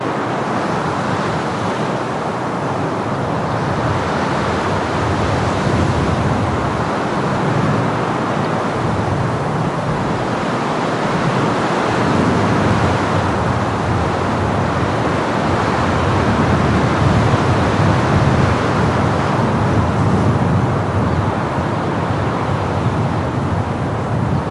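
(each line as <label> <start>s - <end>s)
Strong constant winds with varying intensity. 0.0s - 24.5s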